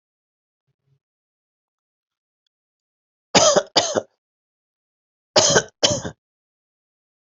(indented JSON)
{
  "expert_labels": [
    {
      "quality": "good",
      "cough_type": "dry",
      "dyspnea": false,
      "wheezing": false,
      "stridor": false,
      "choking": false,
      "congestion": false,
      "nothing": true,
      "diagnosis": "COVID-19",
      "severity": "mild"
    }
  ],
  "age": 31,
  "gender": "male",
  "respiratory_condition": true,
  "fever_muscle_pain": true,
  "status": "COVID-19"
}